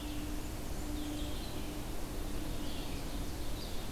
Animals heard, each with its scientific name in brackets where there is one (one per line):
Blackburnian Warbler (Setophaga fusca)
Ovenbird (Seiurus aurocapilla)
Red-eyed Vireo (Vireo olivaceus)